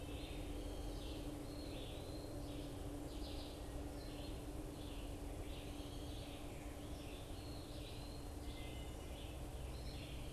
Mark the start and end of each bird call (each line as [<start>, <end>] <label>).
[0.00, 10.32] Red-eyed Vireo (Vireo olivaceus)
[1.32, 2.52] Eastern Wood-Pewee (Contopus virens)
[7.22, 8.32] Eastern Wood-Pewee (Contopus virens)